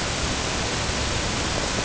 {"label": "ambient", "recorder": "HydroMoth"}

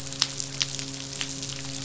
{"label": "biophony, midshipman", "recorder": "SoundTrap 500"}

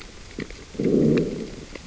{"label": "biophony, growl", "recorder": "SoundTrap 600 or HydroMoth"}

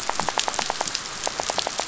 {"label": "biophony, rattle", "recorder": "SoundTrap 500"}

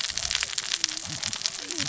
{"label": "biophony, cascading saw", "recorder": "SoundTrap 600 or HydroMoth"}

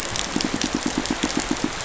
{"label": "biophony, pulse", "recorder": "SoundTrap 500"}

